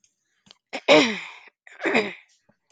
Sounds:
Throat clearing